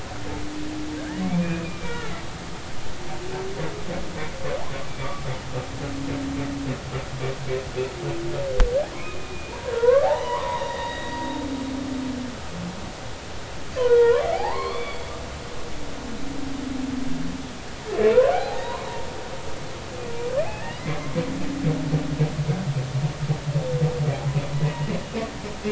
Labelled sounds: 1.0	2.1	humpback whale, 1.3 to 2.7 kHz
9.0	11.2	humpback whale, 0.80 to 3.9 kHz
13.8	15.2	humpback whale, 0.80 to 4.7 kHz
18.3	18.9	humpback whale, 0.80 to 2.0 kHz
20.5	21.1	humpback whale, 0.80 to 2.2 kHz
24.5	24.9	humpback whale, 1.9 to 2.0 kHz

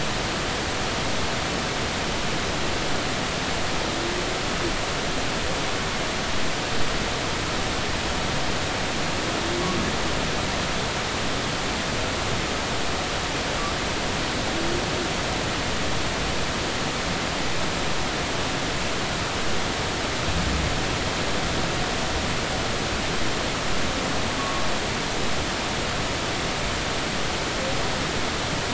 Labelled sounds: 24.4	24.7	humpback whale, 1.1 to 1.2 kHz

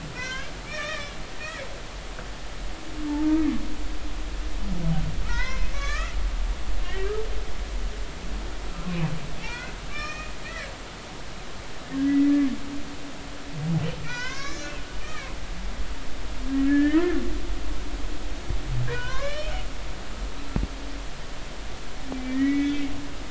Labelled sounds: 0.1	1.1	humpback whale, 1.1 to 3.8 kHz
3.1	3.4	humpback whale, 0.83 to 0.96 kHz
5.2	6.1	humpback whale, 0.86 to 6.5 kHz
6.8	7.1	humpback whale, 1.8 to 2.0 kHz
8.8	10.7	humpback whale, 0.90 to 5.7 kHz
12.0	12.3	humpback whale, 1.9 to 2.0 kHz
14.0	14.7	humpback whale, 0.93 to 7.0 kHz
15.0	15.3	humpback whale, 1.5 to 2.6 kHz
16.7	17.0	humpback whale, 1.6 to 2.0 kHz
18.9	19.5	humpback whale, 0.93 to 3.2 kHz
22.1	22.9	humpback whale, 1.8 to 2.7 kHz

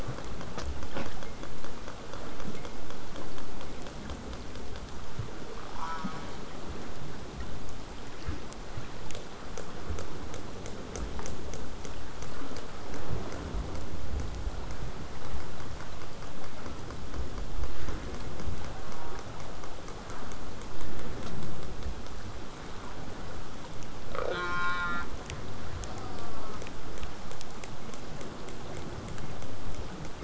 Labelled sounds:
5.8	6.4	killer whale, southern resident, J pod, call S04, 0.71 to 6.0 kHz
18.8	19.2	killer whale, southern resident, J pod, call S04, 0.62 to 1.9 kHz
24.1	25.1	killer whale, southern resident, J pod, call S04, 0.17 to 6.7 kHz
25.9	26.6	killer whale, southern resident, J pod, call S04, 0.62 to 1.7 kHz

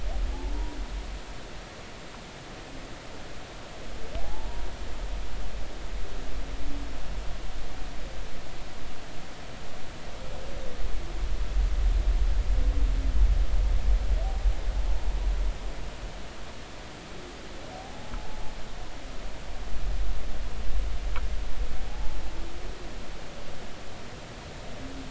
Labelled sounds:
4.2	4.7	humpback whale, 0.80 to 0.99 kHz
17.7	18.1	humpback whale, 0.80 to 0.86 kHz
21.9	22.2	humpback whale, 0.80 to 0.90 kHz

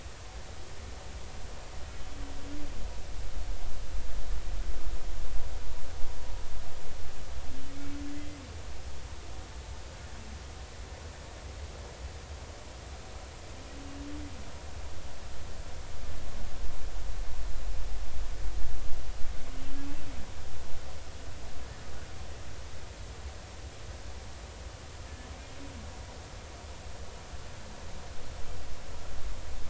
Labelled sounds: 8.1	8.4	humpback whale, 1.9 to 2.1 kHz

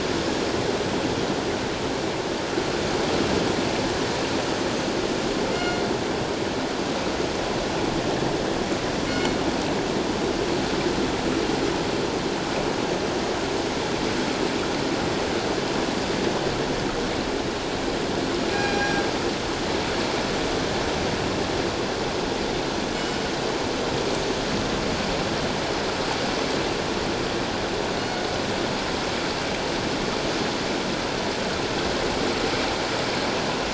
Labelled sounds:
5.5	5.8	killer whale, northern resident, G clan, 1.4 to 7.2 kHz
9.1	9.4	killer whale, northern resident, G clan, 2.1 to 7.3 kHz
18.5	19.0	killer whale, northern resident, G clan, 0.78 to 5.8 kHz
22.9	23.2	killer whale, northern resident, G clan, 2.9 to 7.4 kHz

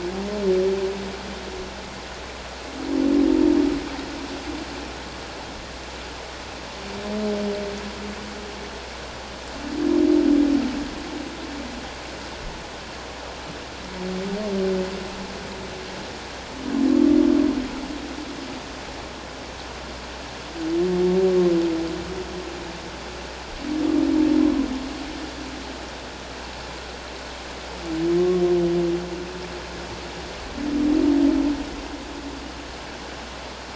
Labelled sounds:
28.2	28.4	humpback whale, 1.0 to 1.2 kHz

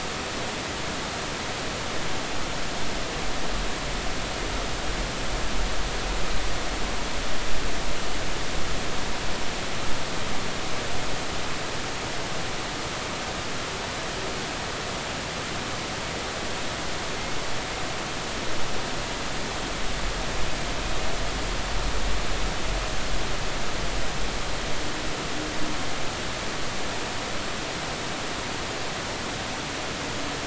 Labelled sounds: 17.2	17.4	humpback whale, 2.1 to 2.2 kHz

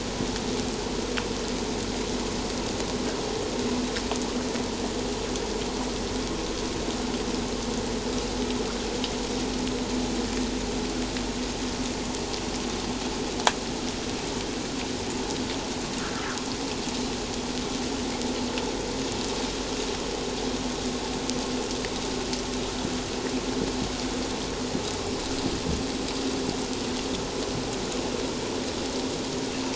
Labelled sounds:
16.0	16.4	humpback whale, 1.2 to 1.8 kHz

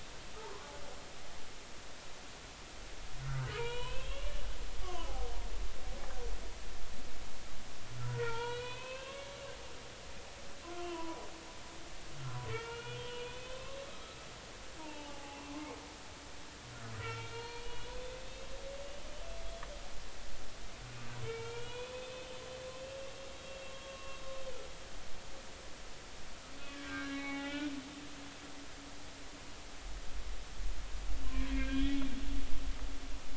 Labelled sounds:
0.3	0.7	humpback whale, 0.96 to 1.3 kHz
3.5	4.3	humpback whale, 0.86 to 4.1 kHz
4.8	5.1	humpback whale, 0.96 to 1.2 kHz
8.0	9.4	humpback whale, 0.86 to 4.1 kHz
10.8	11.2	humpback whale, 0.93 to 3.2 kHz
12.5	13.8	humpback whale, 0.86 to 3.6 kHz
14.8	15.5	humpback whale, 0.80 to 3.0 kHz
16.9	18.5	humpback whale, 0.90 to 4.3 kHz
21.2	22.3	humpback whale, 0.86 to 4.0 kHz
23.7	24.2	humpback whale, 1.0 to 1.2 kHz
26.7	27.7	humpback whale, 0.80 to 3.3 kHz
31.2	32.1	humpback whale, 0.96 to 3.4 kHz

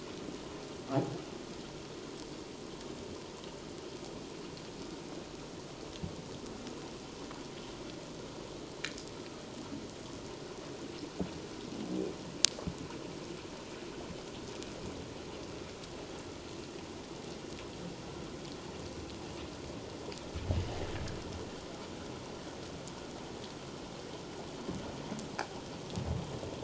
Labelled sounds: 20.5	20.8	water noise, 2.8 to 3.1 kHz

